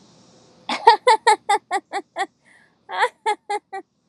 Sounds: Laughter